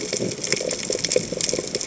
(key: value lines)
label: biophony, chatter
recorder: HydroMoth